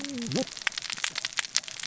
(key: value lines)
label: biophony, cascading saw
recorder: SoundTrap 600 or HydroMoth